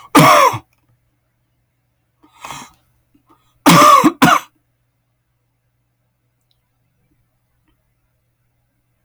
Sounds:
Cough